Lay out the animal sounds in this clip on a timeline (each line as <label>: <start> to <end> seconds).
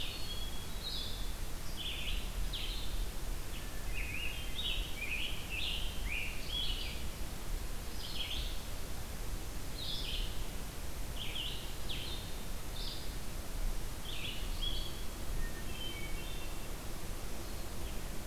Hermit Thrush (Catharus guttatus): 0.0 to 1.0 seconds
Red-eyed Vireo (Vireo olivaceus): 0.0 to 15.0 seconds
Scarlet Tanager (Piranga olivacea): 3.5 to 7.2 seconds
Hermit Thrush (Catharus guttatus): 7.9 to 8.9 seconds
Hermit Thrush (Catharus guttatus): 15.2 to 16.8 seconds